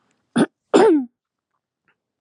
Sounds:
Throat clearing